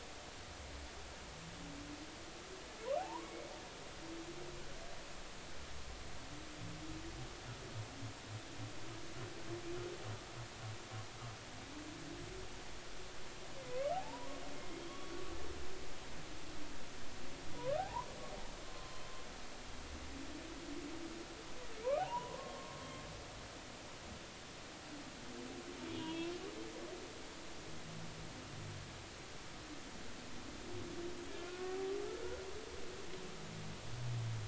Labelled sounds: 3.0	3.5	humpback whale, 0.80 to 2.3 kHz
13.6	14.4	humpback whale, 0.80 to 2.3 kHz
14.8	15.1	humpback whale, 3.2 to 3.4 kHz
17.5	18.1	humpback whale, 0.80 to 1.3 kHz
18.7	19.0	humpback whale, 0.99 to 1.1 kHz
22.0	22.8	humpback whale, 0.80 to 3.0 kHz
25.9	26.3	humpback whale, 3.1 to 3.5 kHz
31.4	31.7	humpback whale, 1.3 to 1.5 kHz

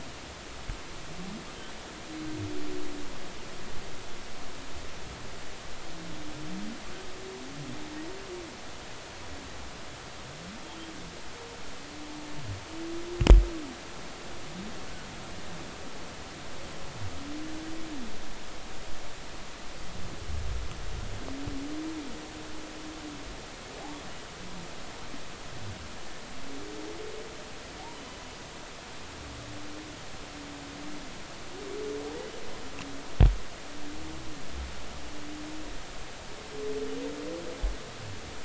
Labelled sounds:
27.9	28.2	humpback whale, 2.9 to 3.1 kHz

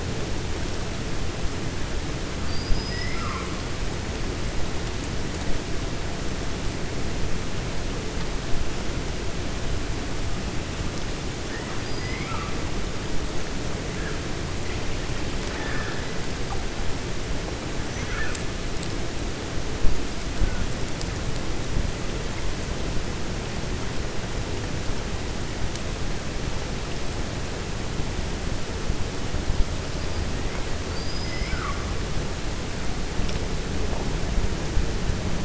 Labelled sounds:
2.5	3.5	killer whale, 1.0 to 5.7 kHz
11.9	12.5	killer whale, 0.90 to 3.2 kHz
15.4	16.0	killer whale, 0.84 to 2.5 kHz
30.8	31.8	killer whale, 1.1 to 5.3 kHz

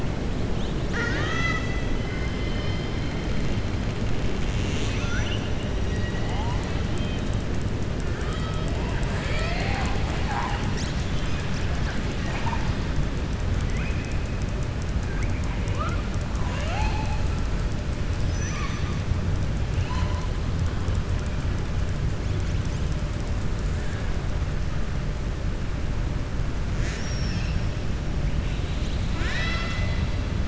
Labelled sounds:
0.8	2.9	killer whale, southern resident, 0.91 to 7.3 kHz
29.1	30.0	killer whale, southern resident, 0.69 to 7.5 kHz

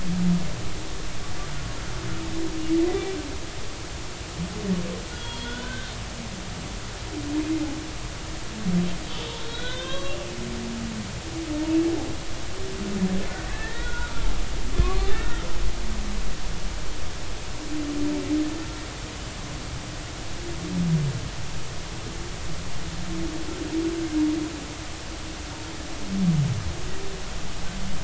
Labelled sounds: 5.1	5.9	humpback whale, 1.4 to 3.5 kHz
9.5	10.2	humpback whale, 0.99 to 4.0 kHz
13.5	14.3	humpback whale, 1.3 to 2.0 kHz
14.7	15.4	humpback whale, 1.0 to 1.9 kHz

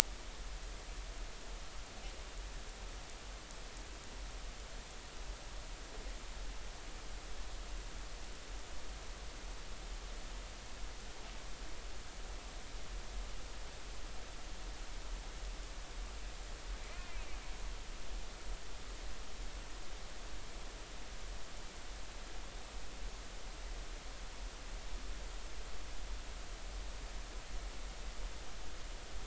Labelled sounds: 16.8	17.2	killer whale, northern resident, 2.2 to 2.6 kHz

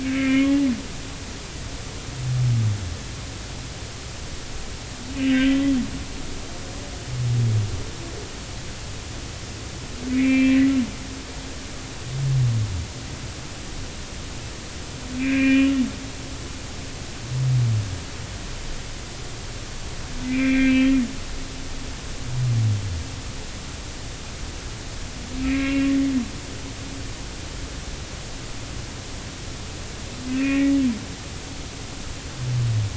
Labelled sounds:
0.0	0.5	humpback whale, 1.5 to 2.5 kHz
5.2	5.6	humpback whale, 1.5 to 3.2 kHz
10.1	10.7	humpback whale, 1.8 to 3.2 kHz
15.1	15.8	humpback whale, 1.5 to 3.0 kHz
20.2	20.9	humpback whale, 1.5 to 2.8 kHz
25.4	25.9	humpback whale, 2.1 to 2.8 kHz
30.3	30.7	humpback whale, 1.8 to 2.5 kHz

